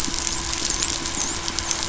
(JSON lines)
{"label": "biophony, dolphin", "recorder": "SoundTrap 500"}